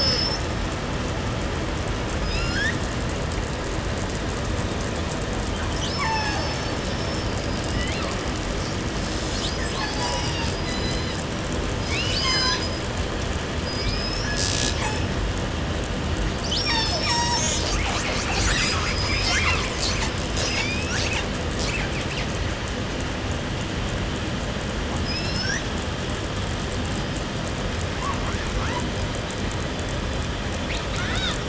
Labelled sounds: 0.0	0.4	killer whale, 0.54 to 7.2 kHz
2.2	2.9	killer whale, southern resident, call S19, 1.0 to 8.0 kHz
5.4	7.4	killer whale, southern resident, call S36, 0 to 8.0 kHz
7.0	8.4	killer whale, southern resident, L pod, call S02iii, 0.59 to 6.1 kHz
8.8	11.5	killer whale, southern resident, call S36, 0.51 to 8.0 kHz
11.6	13.0	killer whale, southern resident, call S19 and call S42, 0.49 to 8.0 kHz
13.5	15.4	killer whale, southern resident, 0.44 to 8.0 kHz
16.4	17.6	killer whale, southern resident, call S36, 0.30 to 8.0 kHz
17.2	22.5	killer whale, southern resident, call S10, 0.17 to 8.0 kHz
18.3	19.5	killer whale, southern resident, call S19, 0.91 to 8.0 kHz
20.2	21.2	killer whale, southern resident, call S19, 0.55 to 8.0 kHz
24.7	25.8	killer whale, southern resident, call S19, 0.34 to 8.0 kHz
27.8	29.1	killer whale, 0.49 to 3.0 kHz
30.5	31.4	killer whale, southern resident, call S18, 0.59 to 8.0 kHz

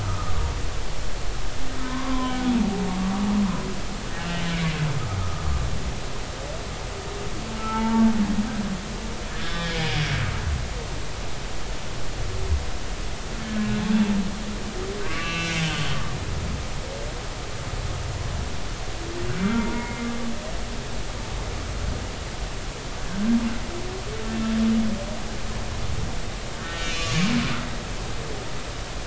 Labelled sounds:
0.0	0.4	humpback whale, 1.1 to 1.4 kHz
1.8	3.2	humpback whale, 0.90 to 1.6 kHz
4.2	4.7	humpback whale, 2.2 to 3.0 kHz
7.6	8.0	humpback whale, 0.83 to 1.4 kHz
9.4	10.0	humpback whale, 2.0 to 5.3 kHz
13.4	13.8	humpback whale, 1.6 to 1.8 kHz
15.0	15.7	humpback whale, 1.1 to 4.1 kHz
19.5	20.1	humpback whale, 0.90 to 2.2 kHz
26.6	27.3	humpback whale, 1.0 to 4.2 kHz

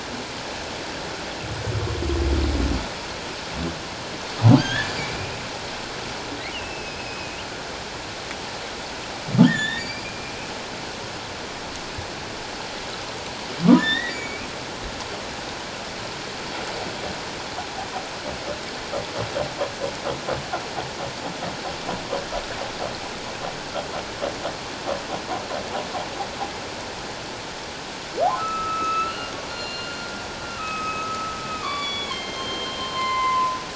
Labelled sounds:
4.5	5.4	humpback whale, 1.4 to 3.6 kHz
6.5	7.4	humpback whale, 2.4 to 5.2 kHz
9.5	10.3	humpback whale, 1.7 to 4.9 kHz
13.8	14.5	humpback whale, 1.7 to 7.0 kHz
28.3	29.9	humpback whale, 1.2 to 6.7 kHz
30.6	33.6	humpback whale, 0.94 to 6.9 kHz

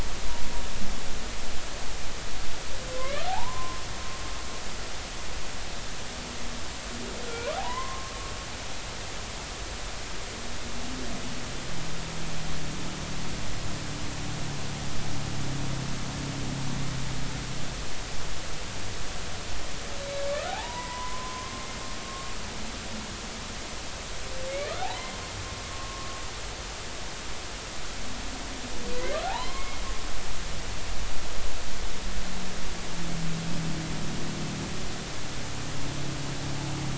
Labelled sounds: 3.0	3.8	humpback whale, 0.80 to 2.6 kHz
7.2	8.1	humpback whale, 0.80 to 1.5 kHz
20.0	21.7	humpback whale, 0.80 to 4.0 kHz
22.0	22.3	humpback whale, 1.1 to 1.2 kHz
24.5	25.2	humpback whale, 0.80 to 2.4 kHz
25.7	26.1	humpback whale, 1.06 to 1.12 kHz
29.2	29.8	humpback whale, 0.80 to 2.2 kHz

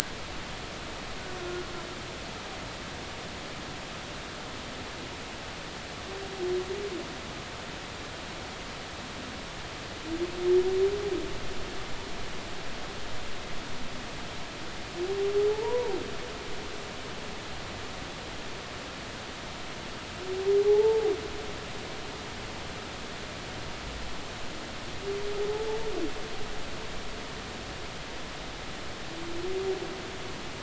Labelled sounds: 1.4	1.6	humpback whale, 1.4 to 1.5 kHz
15.5	15.9	humpback whale, 0.80 to 1.1 kHz
20.6	21.1	humpback whale, 0.80 to 0.93 kHz

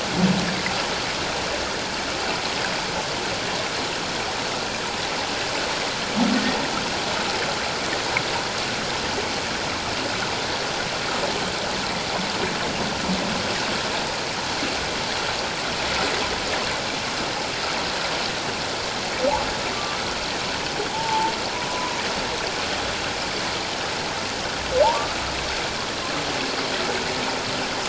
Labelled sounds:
19.7	20.0	humpback whale, 1.1 to 1.2 kHz
20.9	21.3	humpback whale, 0.78 to 1.0 kHz
24.8	25.2	humpback whale, 0.78 to 1.4 kHz

